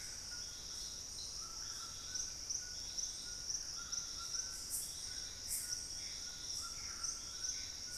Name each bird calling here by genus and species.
Ramphastos tucanus, Cercomacra cinerascens